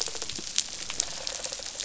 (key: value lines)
label: biophony, rattle response
recorder: SoundTrap 500